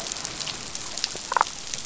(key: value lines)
label: biophony, damselfish
recorder: SoundTrap 500